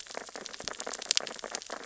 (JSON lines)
{"label": "biophony, sea urchins (Echinidae)", "recorder": "SoundTrap 600 or HydroMoth"}